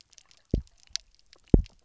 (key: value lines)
label: biophony, double pulse
recorder: SoundTrap 300